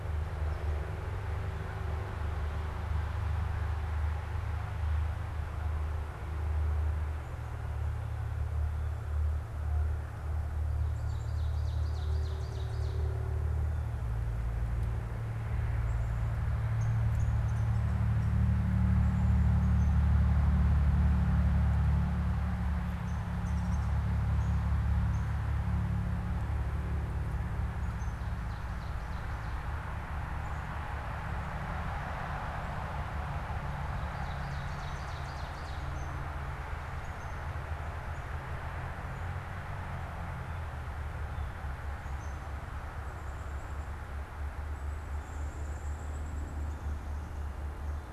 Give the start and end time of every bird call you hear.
10.8s-13.3s: Ovenbird (Seiurus aurocapilla)
15.5s-16.1s: Black-capped Chickadee (Poecile atricapillus)
16.6s-17.8s: unidentified bird
23.0s-28.2s: unidentified bird
28.4s-30.1s: Ovenbird (Seiurus aurocapilla)
33.9s-35.9s: Ovenbird (Seiurus aurocapilla)
36.0s-37.7s: unidentified bird
42.1s-42.4s: unidentified bird
43.1s-46.9s: Black-capped Chickadee (Poecile atricapillus)

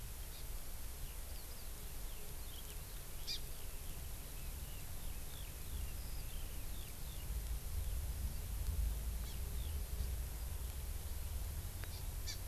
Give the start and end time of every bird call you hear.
0.3s-0.5s: Hawaii Amakihi (Chlorodrepanis virens)
1.0s-7.3s: Eurasian Skylark (Alauda arvensis)
3.3s-3.4s: Hawaii Amakihi (Chlorodrepanis virens)
9.2s-9.4s: Hawaii Amakihi (Chlorodrepanis virens)
11.9s-12.0s: Hawaii Amakihi (Chlorodrepanis virens)
12.3s-12.4s: Hawaii Amakihi (Chlorodrepanis virens)

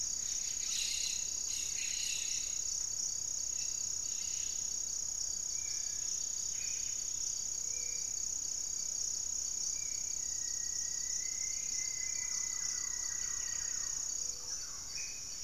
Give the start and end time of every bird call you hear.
0.0s-4.9s: Cobalt-winged Parakeet (Brotogeris cyanoptera)
1.3s-2.9s: unidentified bird
4.9s-7.5s: Striped Woodcreeper (Xiphorhynchus obsoletus)
5.1s-15.4s: Spot-winged Antshrike (Pygiptila stellaris)
5.3s-6.3s: Cinereous Tinamou (Crypturellus cinereus)
6.3s-7.0s: Buff-breasted Wren (Cantorchilus leucotis)
7.4s-8.1s: Gray-fronted Dove (Leptotila rufaxilla)
9.9s-14.4s: Rufous-fronted Antthrush (Formicarius rufifrons)
11.3s-11.9s: unidentified bird
11.8s-15.0s: Thrush-like Wren (Campylorhynchus turdinus)
12.9s-14.0s: Buff-breasted Wren (Cantorchilus leucotis)
14.0s-14.7s: Gray-fronted Dove (Leptotila rufaxilla)
14.2s-15.4s: Hauxwell's Thrush (Turdus hauxwelli)
14.7s-15.4s: Black-faced Antthrush (Formicarius analis)

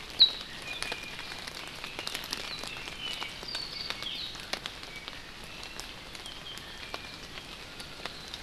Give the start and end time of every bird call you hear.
0.5s-1.4s: Iiwi (Drepanis coccinea)
2.4s-4.2s: Apapane (Himatione sanguinea)
4.0s-4.4s: Hawaii Amakihi (Chlorodrepanis virens)

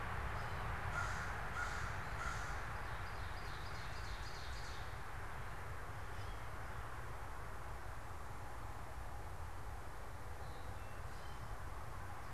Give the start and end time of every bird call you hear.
0.2s-2.9s: American Crow (Corvus brachyrhynchos)
2.5s-5.2s: Ovenbird (Seiurus aurocapilla)
6.0s-6.6s: Gray Catbird (Dumetella carolinensis)
10.2s-11.6s: Eastern Towhee (Pipilo erythrophthalmus)

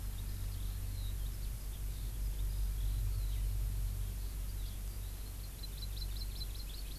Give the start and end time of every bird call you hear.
0.0s-5.3s: Eurasian Skylark (Alauda arvensis)
5.4s-7.0s: Hawaii Amakihi (Chlorodrepanis virens)

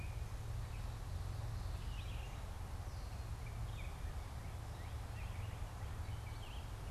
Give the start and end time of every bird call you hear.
1.6s-6.9s: Red-eyed Vireo (Vireo olivaceus)
3.1s-4.3s: Baltimore Oriole (Icterus galbula)

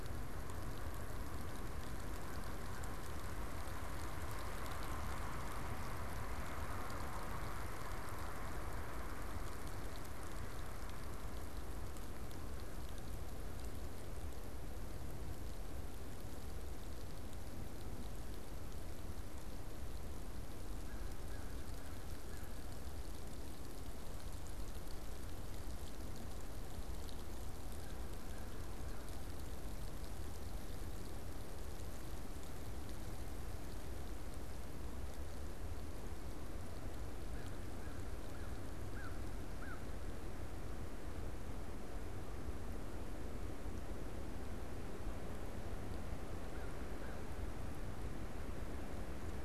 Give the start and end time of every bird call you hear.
0.0s-3.3s: Canada Goose (Branta canadensis)
20.7s-22.9s: American Crow (Corvus brachyrhynchos)
27.8s-29.1s: American Crow (Corvus brachyrhynchos)
37.1s-40.1s: American Crow (Corvus brachyrhynchos)
46.5s-47.5s: American Crow (Corvus brachyrhynchos)

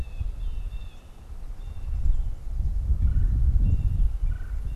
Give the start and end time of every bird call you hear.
0.0s-2.3s: Blue Jay (Cyanocitta cristata)
2.7s-4.8s: Red-bellied Woodpecker (Melanerpes carolinus)
3.4s-4.8s: Blue Jay (Cyanocitta cristata)

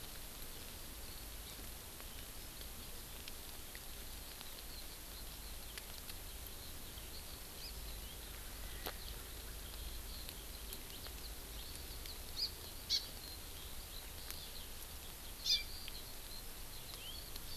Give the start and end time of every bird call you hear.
0.0s-17.6s: Eurasian Skylark (Alauda arvensis)
12.3s-12.5s: Hawaii Amakihi (Chlorodrepanis virens)
12.9s-13.0s: Hawaii Amakihi (Chlorodrepanis virens)
15.4s-15.6s: Hawaii Amakihi (Chlorodrepanis virens)

